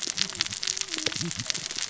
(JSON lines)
{"label": "biophony, cascading saw", "recorder": "SoundTrap 600 or HydroMoth"}